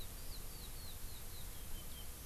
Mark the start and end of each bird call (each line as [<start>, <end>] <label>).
[0.00, 2.26] Eurasian Skylark (Alauda arvensis)